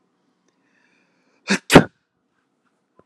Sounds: Sneeze